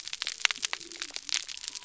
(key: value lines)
label: biophony
recorder: SoundTrap 300